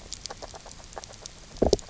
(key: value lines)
label: biophony, grazing
recorder: SoundTrap 300